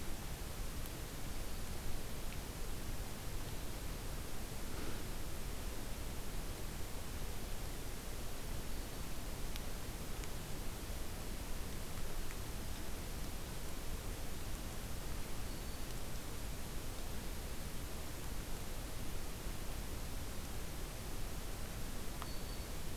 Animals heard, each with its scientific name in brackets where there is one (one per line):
Black-throated Green Warbler (Setophaga virens)